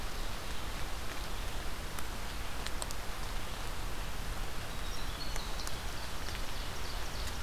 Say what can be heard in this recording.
Winter Wren, Ovenbird